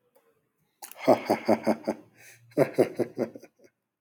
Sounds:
Laughter